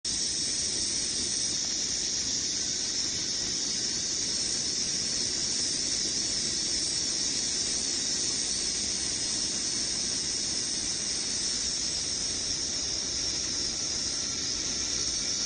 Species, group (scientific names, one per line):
Thopha saccata
Cicadidae